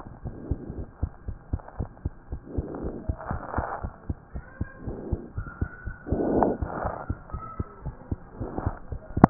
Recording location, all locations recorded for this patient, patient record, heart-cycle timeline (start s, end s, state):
pulmonary valve (PV)
aortic valve (AV)+pulmonary valve (PV)+tricuspid valve (TV)+mitral valve (MV)
#Age: Child
#Sex: Female
#Height: 90.0 cm
#Weight: 12.4 kg
#Pregnancy status: False
#Murmur: Absent
#Murmur locations: nan
#Most audible location: nan
#Systolic murmur timing: nan
#Systolic murmur shape: nan
#Systolic murmur grading: nan
#Systolic murmur pitch: nan
#Systolic murmur quality: nan
#Diastolic murmur timing: nan
#Diastolic murmur shape: nan
#Diastolic murmur grading: nan
#Diastolic murmur pitch: nan
#Diastolic murmur quality: nan
#Outcome: Normal
#Campaign: 2015 screening campaign
0.00	0.22	unannotated
0.22	0.36	S1
0.36	0.48	systole
0.48	0.62	S2
0.62	0.76	diastole
0.76	0.88	S1
0.88	0.98	systole
0.98	1.12	S2
1.12	1.26	diastole
1.26	1.38	S1
1.38	1.48	systole
1.48	1.62	S2
1.62	1.78	diastole
1.78	1.90	S1
1.90	2.02	systole
2.02	2.14	S2
2.14	2.32	diastole
2.32	2.42	S1
2.42	2.56	systole
2.56	2.66	S2
2.66	2.80	diastole
2.80	2.94	S1
2.94	3.06	systole
3.06	3.18	S2
3.18	3.32	diastole
3.32	3.44	S1
3.44	3.56	systole
3.56	3.66	S2
3.66	3.82	diastole
3.82	3.92	S1
3.92	4.08	systole
4.08	4.18	S2
4.18	4.36	diastole
4.36	4.44	S1
4.44	4.60	systole
4.60	4.68	S2
4.68	4.84	diastole
4.84	4.98	S1
4.98	5.06	systole
5.06	5.20	S2
5.20	5.36	diastole
5.36	5.48	S1
5.48	5.58	systole
5.58	5.72	S2
5.72	5.86	diastole
5.86	5.96	S1
5.96	6.08	systole
6.08	6.20	S2
6.20	6.34	diastole
6.34	6.52	S1
6.52	6.60	systole
6.60	6.70	S2
6.70	6.82	diastole
6.82	6.96	S1
6.96	7.08	systole
7.08	7.18	S2
7.18	7.32	diastole
7.32	7.42	S1
7.42	7.56	systole
7.56	7.66	S2
7.66	7.84	diastole
7.84	7.94	S1
7.94	8.08	systole
8.08	8.20	S2
8.20	8.38	diastole
8.38	8.52	S1
8.52	8.64	systole
8.64	8.78	S2
8.78	8.89	diastole
8.89	9.02	S1
9.02	9.30	unannotated